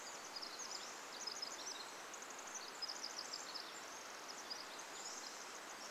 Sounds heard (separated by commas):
Pacific-slope Flycatcher song, Pacific Wren song